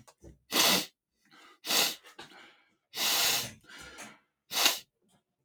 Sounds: Sniff